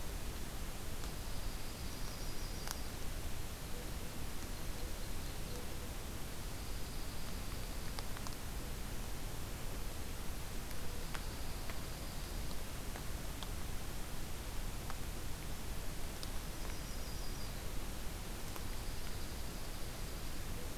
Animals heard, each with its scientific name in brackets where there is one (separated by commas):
Dark-eyed Junco (Junco hyemalis), Yellow-rumped Warbler (Setophaga coronata), Ovenbird (Seiurus aurocapilla)